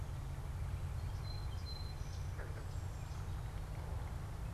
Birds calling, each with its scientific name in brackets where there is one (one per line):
Song Sparrow (Melospiza melodia)